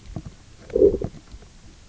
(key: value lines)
label: biophony, low growl
recorder: SoundTrap 300